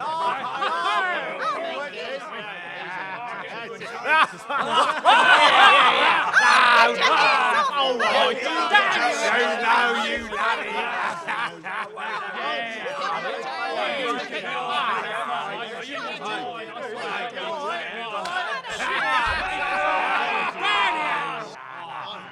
Is there just one person?
no